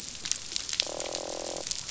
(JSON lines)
{"label": "biophony, croak", "recorder": "SoundTrap 500"}